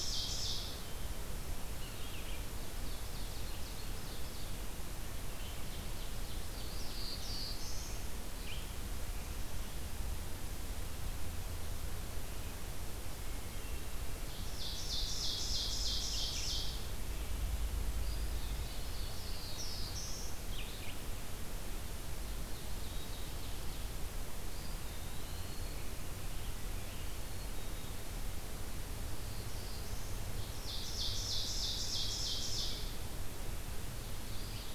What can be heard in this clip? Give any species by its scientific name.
Seiurus aurocapilla, Vireo olivaceus, Setophaga caerulescens, Contopus virens, Poecile atricapillus